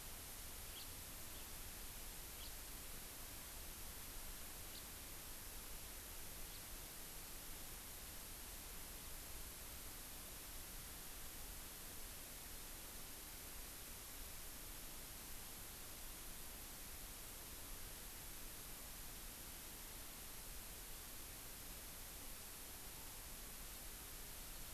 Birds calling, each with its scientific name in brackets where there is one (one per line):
House Finch (Haemorhous mexicanus)